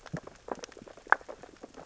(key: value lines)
label: biophony, sea urchins (Echinidae)
recorder: SoundTrap 600 or HydroMoth